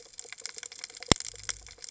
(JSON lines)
{"label": "biophony", "recorder": "HydroMoth"}